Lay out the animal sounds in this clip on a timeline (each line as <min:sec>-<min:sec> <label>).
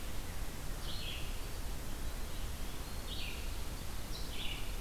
0:00.0-0:04.8 Red-eyed Vireo (Vireo olivaceus)
0:02.2-0:03.6 Eastern Wood-Pewee (Contopus virens)